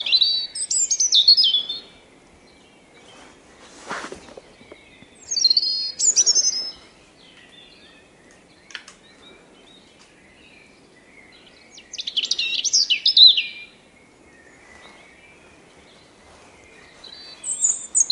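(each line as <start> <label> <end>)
0.0 A bird chirps cheerfully in nature. 1.9
5.2 A bird chirps cheerfully in nature. 6.8
11.9 A bird chirps cheerfully in nature. 13.7
17.4 A bird chirps cheerfully in nature. 18.1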